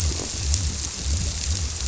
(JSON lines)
{"label": "biophony", "recorder": "SoundTrap 300"}